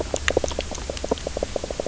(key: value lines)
label: biophony, knock croak
recorder: SoundTrap 300